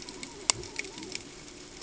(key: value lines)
label: ambient
recorder: HydroMoth